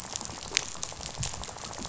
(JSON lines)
{"label": "biophony, rattle", "recorder": "SoundTrap 500"}